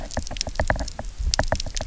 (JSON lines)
{"label": "biophony, knock", "recorder": "SoundTrap 300"}